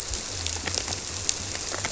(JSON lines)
{"label": "biophony", "recorder": "SoundTrap 300"}